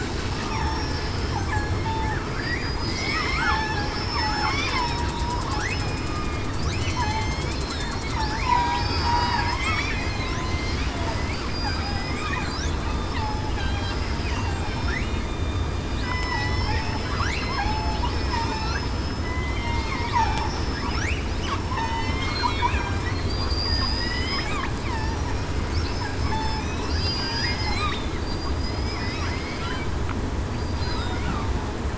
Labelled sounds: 0.5	0.8	killer whale, southern resident, 0.82 to 1.1 kHz
1.8	4.7	killer whale, southern resident, 0.75 to 5.5 kHz
5.1	6.2	killer whale, southern resident, 0.91 to 5.2 kHz
6.8	7.9	killer whale, southern resident, 2.0 to 4.3 kHz
8.2	9.1	killer whale, southern resident, 0.73 to 5.2 kHz
9.4	9.9	killer whale, southern resident, 2.0 to 3.6 kHz
11.9	12.4	killer whale, southern resident, 1.9 to 2.5 kHz
13.2	13.9	killer whale, southern resident, 0.82 to 4.1 kHz
14.6	15.7	killer whale, southern resident, 3.6 to 5.4 kHz
16.0	16.7	killer whale, southern resident, 0.77 to 4.0 kHz
17.2	17.6	killer whale, southern resident, 4.0 to 4.3 kHz
18.3	18.7	killer whale, southern resident, 5.2 to 5.4 kHz
19.2	20.1	killer whale, southern resident, 1.9 to 3.3 kHz
20.5	20.9	killer whale, southern resident, 5.2 to 5.3 kHz
21.6	22.7	killer whale, southern resident, 3.1 to 5.4 kHz
24.1	24.5	killer whale, southern resident, 2.9 to 3.3 kHz
26.2	26.6	killer whale, southern resident, 5.2 to 5.3 kHz
27.6	29.2	killer whale, southern resident, 3.5 to 5.2 kHz
30.7	31.1	killer whale, southern resident, 4.9 to 5.1 kHz

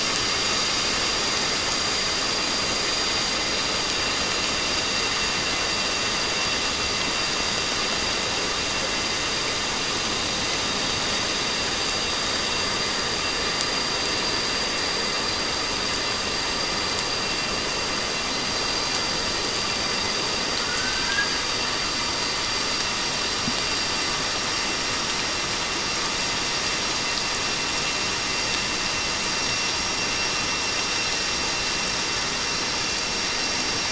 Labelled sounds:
20.6	21.4	sonar likely from a naval vessel, 1.4 to 1.7 kHz

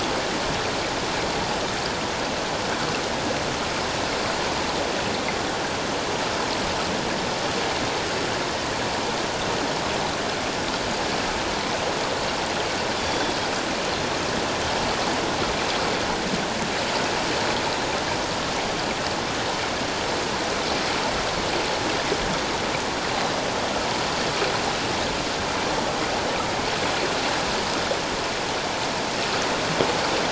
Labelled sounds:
13.0	13.3	Pacific white-sided dolphin, 3.4 to 3.6 kHz

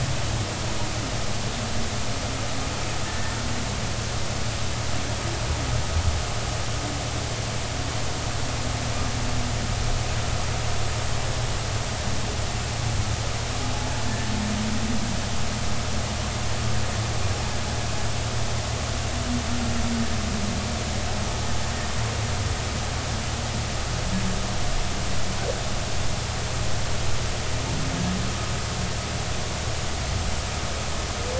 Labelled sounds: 3.0	3.4	humpback whale, 1.7 to 1.9 kHz
14.0	14.3	humpback whale, 1.7 to 1.8 kHz

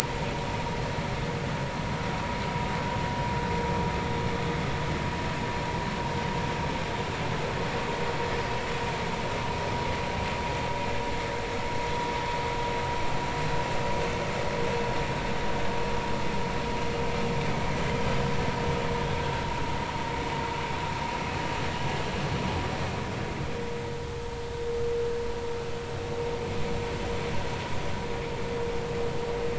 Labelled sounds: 0.0	0.3	vessel noise, 0.86 to 1.1 kHz

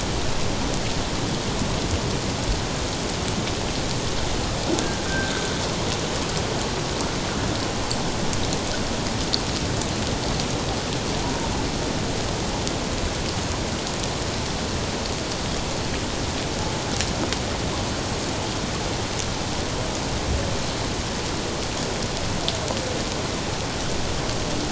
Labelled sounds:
4.8	5.3	humpback whale, 1.4 to 1.7 kHz
11.2	11.5	humpback whale, 0.88 to 1.0 kHz

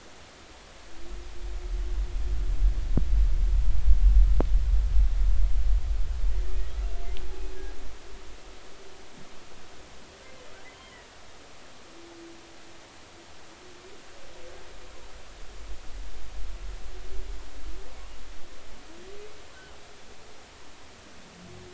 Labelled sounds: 10.7	10.9	humpback whale, 3.0 to 3.2 kHz

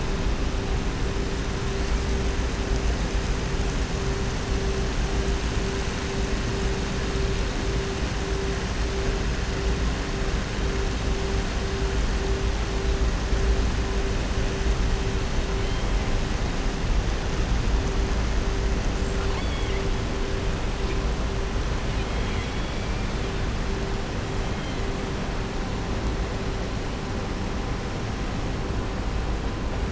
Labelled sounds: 19.2	19.8	killer whale, southern resident, 1.1 to 4.6 kHz
21.8	22.9	killer whale, southern resident, 2.0 to 4.0 kHz

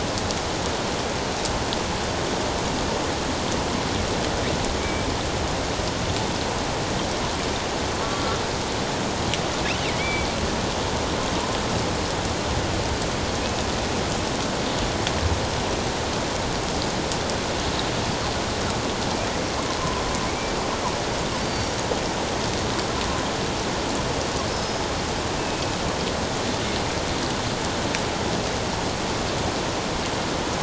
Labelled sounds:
4.8	5.1	killer whale, offshore, 2.2 to 2.4 kHz
10.0	10.3	killer whale, offshore, 2.1 to 3.5 kHz
21.4	21.8	killer whale, offshore, 4.5 to 5.8 kHz
24.5	25.8	killer whale, offshore, 2.5 to 5.3 kHz

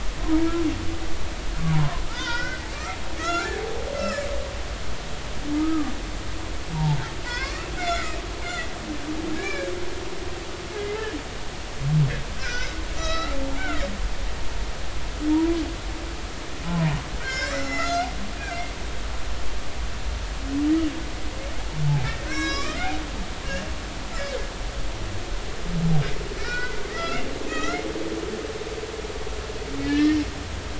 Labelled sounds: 1.7	3.5	humpback whale, 0.83 to 5.6 kHz
3.9	4.3	humpback whale, 1.2 to 5.4 kHz
5.6	5.9	humpback whale, 1.1 to 1.3 kHz
7.2	8.7	humpback whale, 0.93 to 7.2 kHz
9.3	9.7	humpback whale, 1.6 to 2.4 kHz
10.7	11.0	humpback whale, 2.0 to 2.2 kHz
12.4	13.9	humpback whale, 1.2 to 7.2 kHz
15.3	15.6	humpback whale, 0.86 to 1.1 kHz
16.6	18.6	humpback whale, 0.90 to 7.0 kHz
22.0	22.9	humpback whale, 1.0 to 7.5 kHz
26.4	27.8	humpback whale, 1.2 to 6.1 kHz
29.9	30.2	humpback whale, 1.7 to 1.9 kHz

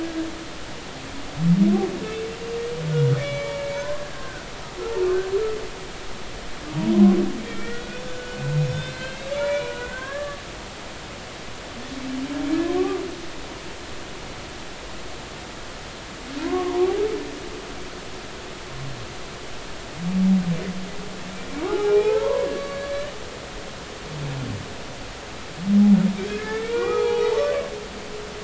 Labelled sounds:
0.0	0.3	humpback whale, 1.5 to 1.7 kHz
3.2	4.5	humpback whale, 0.90 to 2.3 kHz
7.4	8.2	humpback whale, 1.3 to 3.6 kHz
8.7	10.4	humpback whale, 0.99 to 4.3 kHz
12.6	13.0	humpback whale, 0.99 to 1.2 kHz
16.4	16.9	humpback whale, 0.90 to 1.2 kHz
21.6	23.1	humpback whale, 0.80 to 2.6 kHz
26.3	27.6	humpback whale, 0.80 to 6.5 kHz

